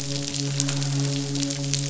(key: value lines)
label: biophony, midshipman
recorder: SoundTrap 500